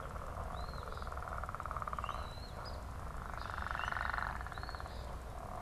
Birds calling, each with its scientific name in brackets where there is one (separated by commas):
Common Grackle (Quiscalus quiscula), Eastern Phoebe (Sayornis phoebe), Red-winged Blackbird (Agelaius phoeniceus)